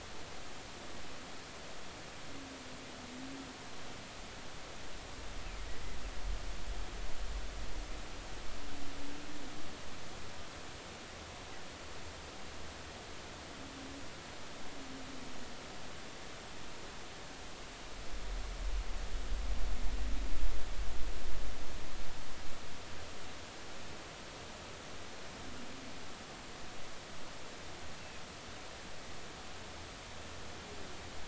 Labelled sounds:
28.0	28.2	humpback whale, 2.4 to 2.8 kHz

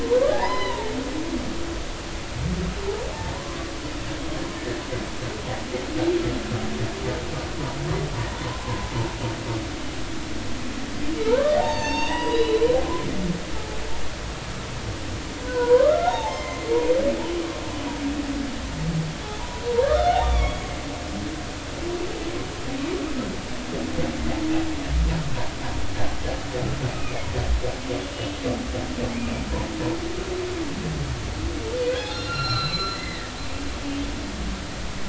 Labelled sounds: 0.3	0.9	humpback whale, 0.80 to 5.1 kHz
3.4	3.7	humpback whale, 0.99 to 1.2 kHz
11.2	12.7	humpback whale, 0.80 to 6.7 kHz
15.4	16.6	humpback whale, 0.80 to 6.4 kHz
19.8	20.6	humpback whale, 1.0 to 3.8 kHz
26.9	27.3	humpback whale, 2.1 to 2.6 kHz
28.0	28.3	humpback whale, 2.8 to 3.0 kHz
31.9	33.3	humpback whale, 1.2 to 5.6 kHz

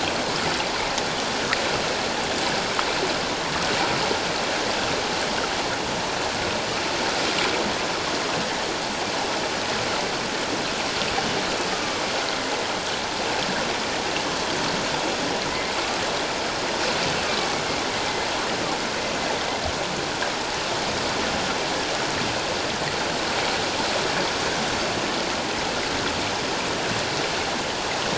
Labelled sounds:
11.7	12.0	killer whale, northern resident, 1.1 to 1.3 kHz
17.2	17.5	killer whale, northern resident, 1.1 to 1.3 kHz

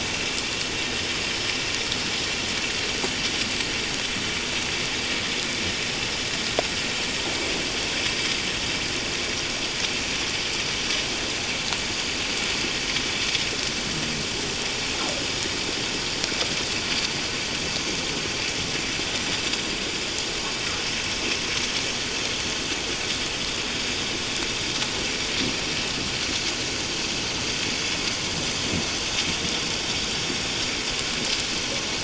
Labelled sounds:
31.6	31.9	vessel noise, 5.7 to 6.0 kHz

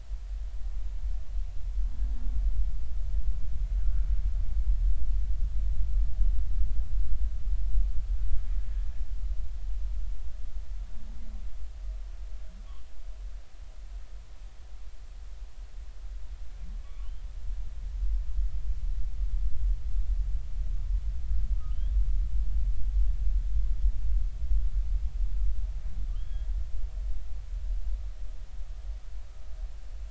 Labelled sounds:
3.8	4.1	humpback whale, 1.3 to 1.7 kHz
16.8	17.1	humpback whale, 1.1 to 2.4 kHz
26.1	26.5	humpback whale, 2.8 to 3.4 kHz

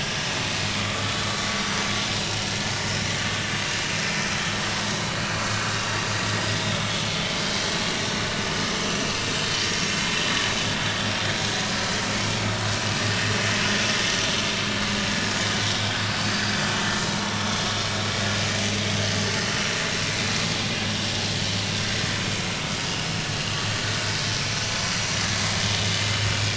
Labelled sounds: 5.0	5.3	vessel noise, 4.4 to 4.6 kHz
6.5	6.9	vessel noise, 3.5 to 3.8 kHz
12.1	12.7	vessel noise, 2.1 to 4.4 kHz
16.3	16.6	vessel noise, 4.8 to 5.0 kHz
24.8	25.1	vessel noise, 5.7 to 5.9 kHz

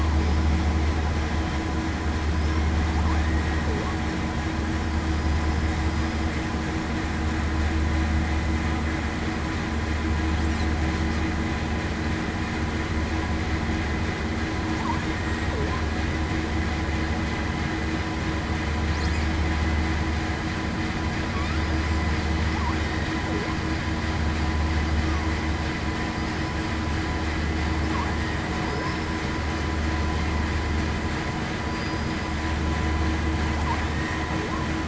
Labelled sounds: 5.8	6.2	killer whale, southern resident, 4.8 to 5.0 kHz
28.6	29.1	killer whale, southern resident, 5.0 to 5.4 kHz
31.7	32.2	killer whale, southern resident, 4.7 to 5.0 kHz

